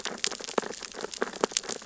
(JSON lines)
{"label": "biophony, sea urchins (Echinidae)", "recorder": "SoundTrap 600 or HydroMoth"}